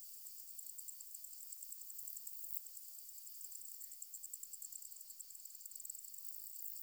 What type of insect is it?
orthopteran